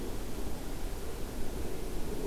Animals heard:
forest ambience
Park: Marsh-Billings-Rockefeller National Historical Park